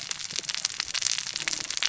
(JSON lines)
{"label": "biophony, cascading saw", "recorder": "SoundTrap 600 or HydroMoth"}